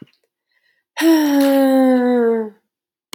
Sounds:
Sigh